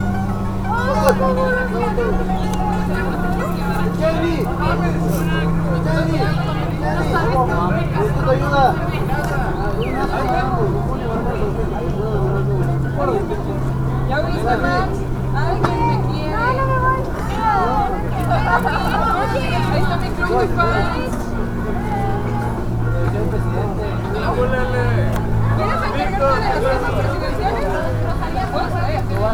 At what point does music play?
beginning